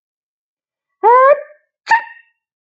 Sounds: Sneeze